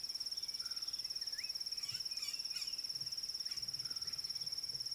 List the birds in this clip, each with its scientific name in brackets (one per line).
Slate-colored Boubou (Laniarius funebris)
White-rumped Shrike (Eurocephalus ruppelli)